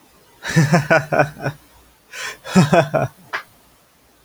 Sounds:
Laughter